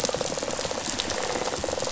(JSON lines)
{"label": "biophony, rattle response", "recorder": "SoundTrap 500"}